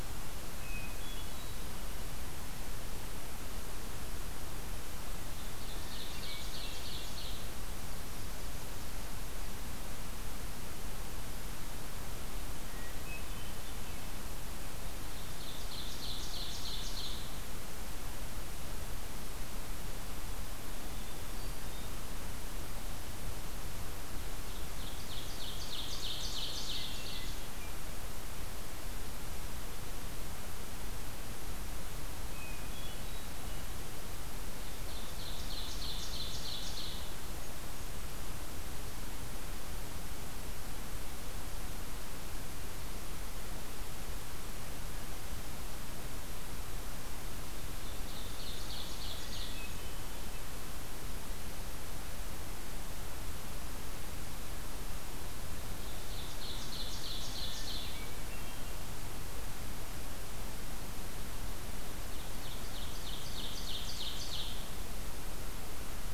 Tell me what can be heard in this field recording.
Hermit Thrush, Ovenbird, Golden-crowned Kinglet